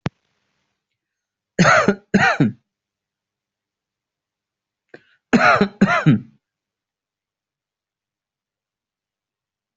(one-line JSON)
{"expert_labels": [{"quality": "good", "cough_type": "dry", "dyspnea": false, "wheezing": false, "stridor": false, "choking": false, "congestion": false, "nothing": true, "diagnosis": "lower respiratory tract infection", "severity": "mild"}], "age": 34, "gender": "male", "respiratory_condition": false, "fever_muscle_pain": false, "status": "healthy"}